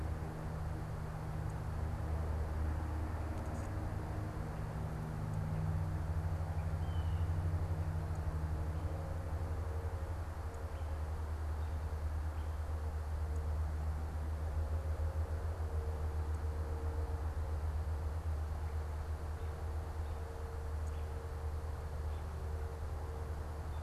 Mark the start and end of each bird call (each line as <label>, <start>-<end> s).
Blue Jay (Cyanocitta cristata), 6.5-7.5 s